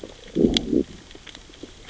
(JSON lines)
{"label": "biophony, growl", "recorder": "SoundTrap 600 or HydroMoth"}